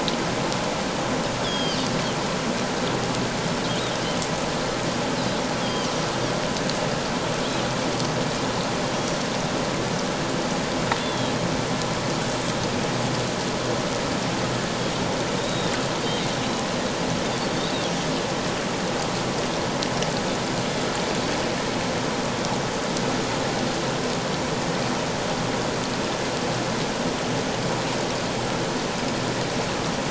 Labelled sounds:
1.4	1.9	Pacific white-sided dolphin, 2.8 to 5.3 kHz
5.6	5.9	Pacific white-sided dolphin, 3.0 to 3.4 kHz
8.9	9.2	Pacific white-sided dolphin, 5.6 to 5.9 kHz
11.0	11.3	Pacific white-sided dolphin, 3.2 to 3.5 kHz
15.4	15.7	Pacific white-sided dolphin, 3.5 to 3.9 kHz
17.5	17.8	Pacific white-sided dolphin, 3.5 to 4.6 kHz

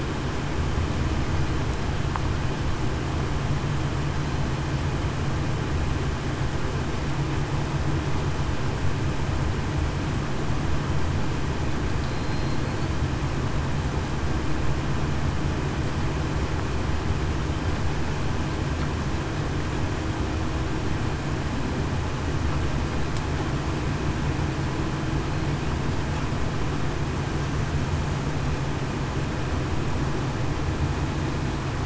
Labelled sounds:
12.0	12.6	killer whale, southern resident, 4.1 to 4.2 kHz

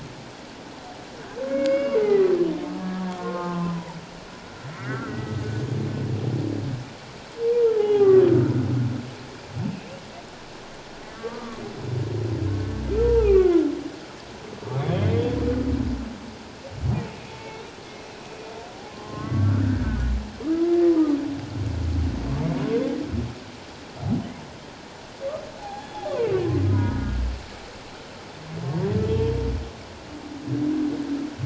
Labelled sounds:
1.5	2.3	humpback whale, 1.9 to 5.1 kHz
3.2	4.0	humpback whale, 0.84 to 1.5 kHz
4.7	5.4	humpback whale, 1.2 to 2.2 kHz
7.8	8.2	humpback whale, 0.78 to 3.0 kHz
11.1	11.6	humpback whale, 1.1 to 1.2 kHz
13.0	13.7	humpback whale, 0.78 to 2.7 kHz
14.8	15.4	humpback whale, 3.0 to 3.7 kHz
17.3	17.6	humpback whale, 0.84 to 2.3 kHz
18.9	20.1	humpback whale, 0.97 to 1.7 kHz
25.6	26.1	humpback whale, 0.78 to 3.4 kHz
26.7	27.2	humpback whale, 0.91 to 1.5 kHz

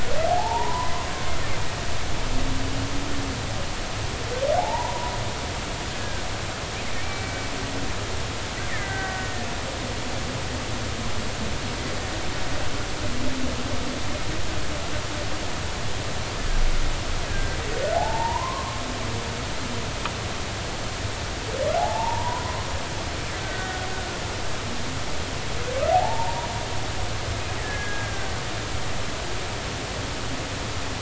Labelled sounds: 0.3	1.1	humpback whale, 0.80 to 1.2 kHz
4.6	5.1	humpback whale, 0.80 to 1.0 kHz
5.9	6.2	killer whale, Bigg's (transient), 1.5 to 1.7 kHz
7.0	7.3	killer whale, Bigg's (transient), 2.1 to 2.4 kHz
8.7	9.5	killer whale, Bigg's (transient), 1.5 to 2.2 kHz
17.3	17.6	killer whale, Bigg's (transient), 1.5 to 1.7 kHz
17.9	18.8	humpback whale, 0.80 to 1.2 kHz
21.8	22.4	humpback whale, 0.80 to 1.1 kHz
23.4	23.9	killer whale, Bigg's (transient), 1.4 to 1.6 kHz
25.9	26.5	humpback whale, 0.80 to 0.99 kHz
27.6	28.3	killer whale, Bigg's (transient), 1.5 to 2.0 kHz

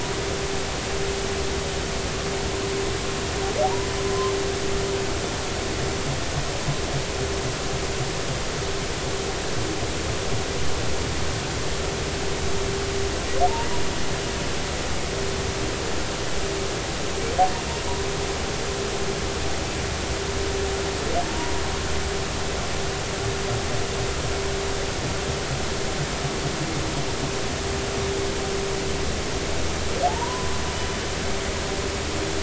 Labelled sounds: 4.1	4.3	humpback whale, 0.99 to 1.1 kHz
30.1	30.5	humpback whale, 0.80 to 1.1 kHz

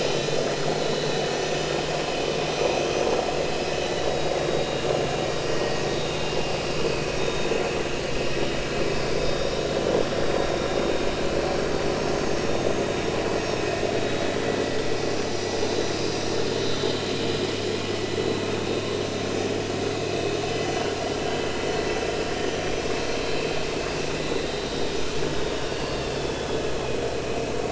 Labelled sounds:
0.8	1.7	vessel noise, 3.9 to 6.0 kHz
2.5	3.1	vessel noise, 6.0 to 6.2 kHz
3.6	7.5	vessel noise, 1.8 to 6.0 kHz
9.2	9.5	vessel noise, 3.6 to 3.9 kHz
12.0	12.2	vessel noise, 6.4 to 6.5 kHz
14.0	14.4	vessel noise, 3.7 to 3.9 kHz
15.9	17.5	vessel noise, 3.9 to 5.2 kHz
20.0	20.7	vessel noise, 2.5 to 3.1 kHz
23.3	23.6	vessel noise, 2.5 to 2.7 kHz
25.7	26.6	vessel noise, 2.7 to 4.6 kHz

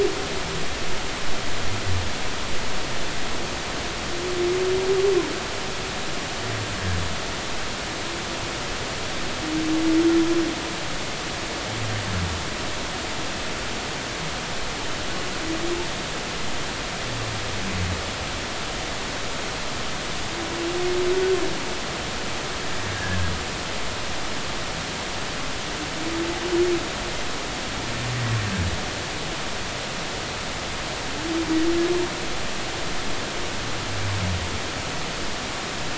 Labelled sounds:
22.9	23.2	humpback whale, 1.5 to 1.8 kHz

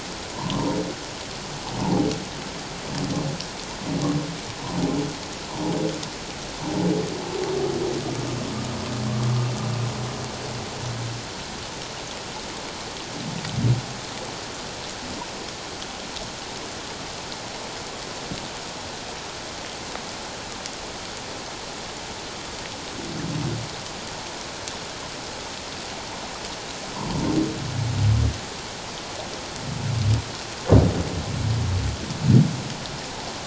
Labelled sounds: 0.4	0.6	humpback whale, 0.88 to 1.2 kHz
1.8	2.1	humpback whale, 0.78 to 1.0 kHz

